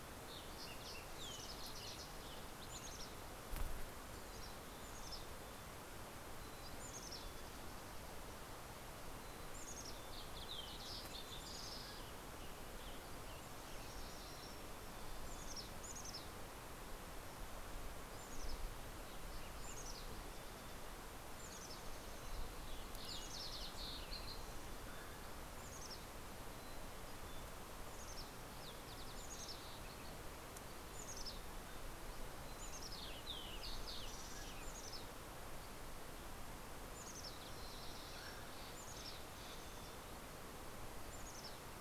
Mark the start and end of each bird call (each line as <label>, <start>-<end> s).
Fox Sparrow (Passerella iliaca), 0.0-3.5 s
Mountain Chickadee (Poecile gambeli), 2.4-3.9 s
Mountain Chickadee (Poecile gambeli), 4.3-8.0 s
Mountain Quail (Oreortyx pictus), 7.3-8.3 s
Fox Sparrow (Passerella iliaca), 7.9-13.1 s
Mountain Chickadee (Poecile gambeli), 8.5-10.6 s
Mountain Quail (Oreortyx pictus), 11.2-13.2 s
Western Tanager (Piranga ludoviciana), 11.8-14.3 s
MacGillivray's Warbler (Geothlypis tolmiei), 12.9-15.3 s
Mountain Chickadee (Poecile gambeli), 15.0-16.7 s
Mountain Chickadee (Poecile gambeli), 17.8-18.8 s
Mountain Chickadee (Poecile gambeli), 19.5-22.1 s
Fox Sparrow (Passerella iliaca), 20.8-25.0 s
Mountain Chickadee (Poecile gambeli), 23.0-24.2 s
Mountain Quail (Oreortyx pictus), 24.0-25.7 s
Mountain Chickadee (Poecile gambeli), 25.6-30.4 s
Fox Sparrow (Passerella iliaca), 27.1-31.0 s
Mountain Chickadee (Poecile gambeli), 30.7-31.9 s
Fox Sparrow (Passerella iliaca), 31.5-37.2 s
Mountain Chickadee (Poecile gambeli), 32.5-33.5 s
Mountain Chickadee (Poecile gambeli), 34.5-36.1 s
MacGillivray's Warbler (Geothlypis tolmiei), 36.3-38.9 s
Mountain Chickadee (Poecile gambeli), 36.9-37.7 s
Mountain Quail (Oreortyx pictus), 37.6-39.6 s
Steller's Jay (Cyanocitta stelleri), 37.9-40.6 s
Mountain Chickadee (Poecile gambeli), 38.4-39.7 s
Mountain Chickadee (Poecile gambeli), 41.2-41.8 s